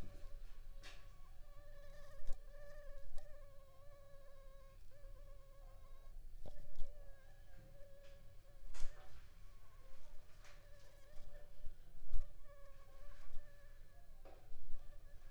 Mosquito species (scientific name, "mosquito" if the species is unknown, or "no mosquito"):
mosquito